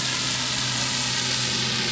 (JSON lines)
{"label": "anthrophony, boat engine", "recorder": "SoundTrap 500"}